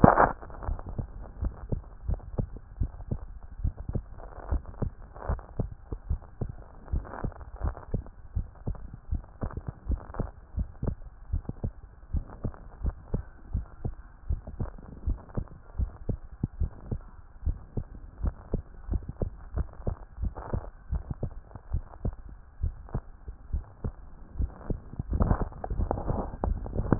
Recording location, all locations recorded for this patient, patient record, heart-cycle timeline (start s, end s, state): tricuspid valve (TV)
aortic valve (AV)+pulmonary valve (PV)+tricuspid valve (TV)+mitral valve (MV)
#Age: Child
#Sex: Male
#Height: 127.0 cm
#Weight: 26.6 kg
#Pregnancy status: False
#Murmur: Absent
#Murmur locations: nan
#Most audible location: nan
#Systolic murmur timing: nan
#Systolic murmur shape: nan
#Systolic murmur grading: nan
#Systolic murmur pitch: nan
#Systolic murmur quality: nan
#Diastolic murmur timing: nan
#Diastolic murmur shape: nan
#Diastolic murmur grading: nan
#Diastolic murmur pitch: nan
#Diastolic murmur quality: nan
#Outcome: Abnormal
#Campaign: 2014 screening campaign
0.00	0.66	unannotated
0.66	0.78	S1
0.78	0.96	systole
0.96	1.06	S2
1.06	1.40	diastole
1.40	1.52	S1
1.52	1.70	systole
1.70	1.82	S2
1.82	2.08	diastole
2.08	2.20	S1
2.20	2.38	systole
2.38	2.48	S2
2.48	2.80	diastole
2.80	2.90	S1
2.90	3.10	systole
3.10	3.20	S2
3.20	3.62	diastole
3.62	3.74	S1
3.74	3.92	systole
3.92	4.02	S2
4.02	4.50	diastole
4.50	4.62	S1
4.62	4.80	systole
4.80	4.92	S2
4.92	5.28	diastole
5.28	5.40	S1
5.40	5.58	systole
5.58	5.70	S2
5.70	6.08	diastole
6.08	6.20	S1
6.20	6.40	systole
6.40	6.52	S2
6.52	6.92	diastole
6.92	7.04	S1
7.04	7.22	systole
7.22	7.32	S2
7.32	7.62	diastole
7.62	7.74	S1
7.74	7.92	systole
7.92	8.02	S2
8.02	8.36	diastole
8.36	8.46	S1
8.46	8.66	systole
8.66	8.76	S2
8.76	9.10	diastole
9.10	9.22	S1
9.22	9.42	systole
9.42	9.52	S2
9.52	9.88	diastole
9.88	10.00	S1
10.00	10.18	systole
10.18	10.28	S2
10.28	10.56	diastole
10.56	10.68	S1
10.68	10.84	systole
10.84	10.96	S2
10.96	11.32	diastole
11.32	11.42	S1
11.42	11.62	systole
11.62	11.72	S2
11.72	12.14	diastole
12.14	12.24	S1
12.24	12.44	systole
12.44	12.52	S2
12.52	12.82	diastole
12.82	12.94	S1
12.94	13.12	systole
13.12	13.24	S2
13.24	13.54	diastole
13.54	13.66	S1
13.66	13.84	systole
13.84	13.94	S2
13.94	14.28	diastole
14.28	14.40	S1
14.40	14.60	systole
14.60	14.70	S2
14.70	15.06	diastole
15.06	15.18	S1
15.18	15.36	systole
15.36	15.46	S2
15.46	15.78	diastole
15.78	15.90	S1
15.90	16.08	systole
16.08	16.18	S2
16.18	16.60	diastole
16.60	16.72	S1
16.72	16.90	systole
16.90	17.00	S2
17.00	17.46	diastole
17.46	17.58	S1
17.58	17.76	systole
17.76	17.86	S2
17.86	18.22	diastole
18.22	18.34	S1
18.34	18.52	systole
18.52	18.62	S2
18.62	18.90	diastole
18.90	19.02	S1
19.02	19.20	systole
19.20	19.30	S2
19.30	19.56	diastole
19.56	19.68	S1
19.68	19.86	systole
19.86	19.96	S2
19.96	20.20	diastole
20.20	20.32	S1
20.32	20.52	systole
20.52	20.62	S2
20.62	20.92	diastole
20.92	21.04	S1
21.04	21.22	systole
21.22	21.30	S2
21.30	21.72	diastole
21.72	21.84	S1
21.84	22.04	systole
22.04	22.14	S2
22.14	22.62	diastole
22.62	22.74	S1
22.74	22.94	systole
22.94	23.02	S2
23.02	23.27	diastole
23.27	26.99	unannotated